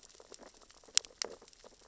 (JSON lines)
{"label": "biophony, sea urchins (Echinidae)", "recorder": "SoundTrap 600 or HydroMoth"}